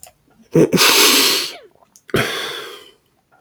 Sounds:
Sniff